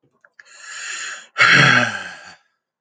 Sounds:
Sigh